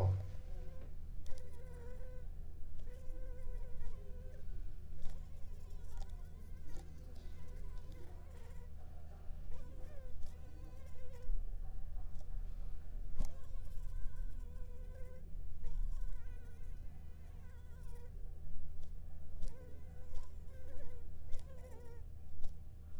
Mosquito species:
Anopheles arabiensis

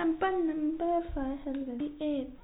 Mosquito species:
no mosquito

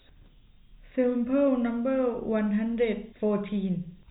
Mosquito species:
no mosquito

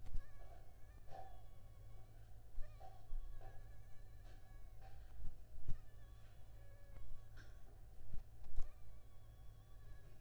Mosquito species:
Anopheles funestus s.l.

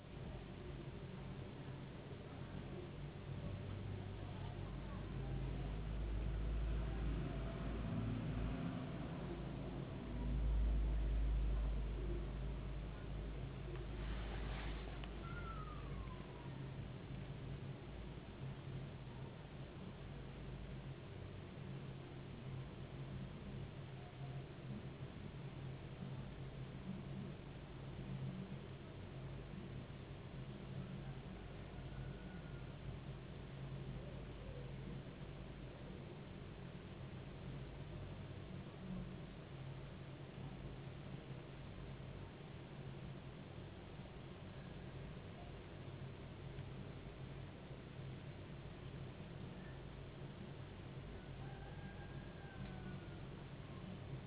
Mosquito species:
no mosquito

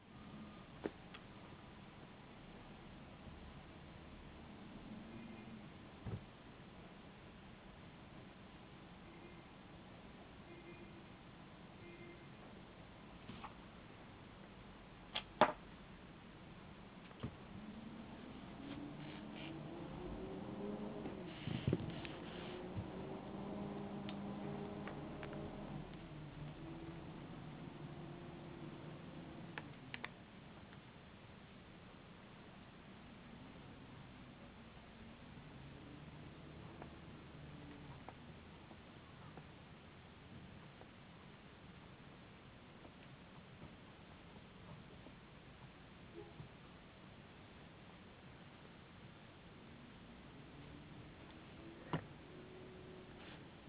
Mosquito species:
no mosquito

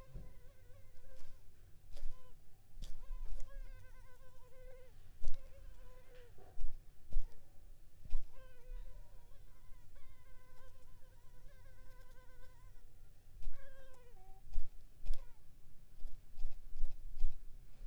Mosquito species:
Culex pipiens complex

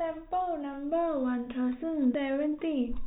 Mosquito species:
no mosquito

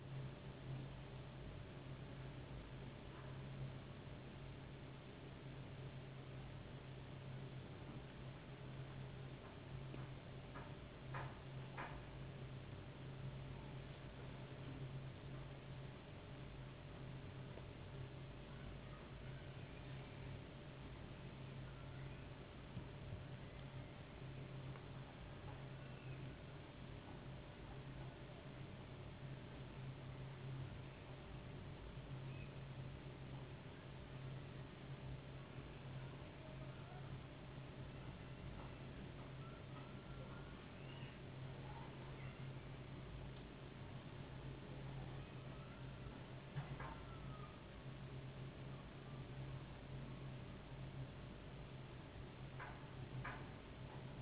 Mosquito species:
no mosquito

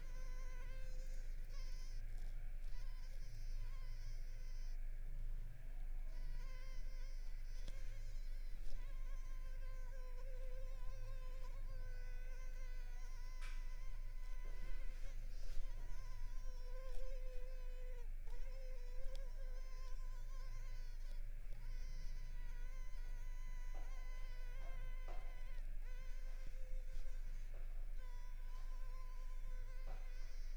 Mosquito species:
Culex pipiens complex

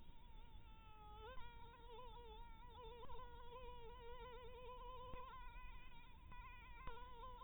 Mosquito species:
Anopheles maculatus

